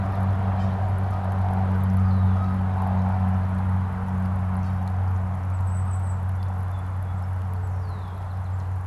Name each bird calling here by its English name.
Canada Goose, Red-winged Blackbird, Golden-crowned Kinglet, Song Sparrow